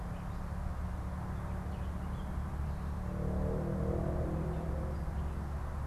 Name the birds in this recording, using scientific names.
Dumetella carolinensis